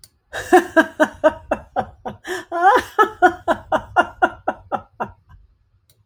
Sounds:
Laughter